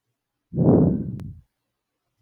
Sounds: Sigh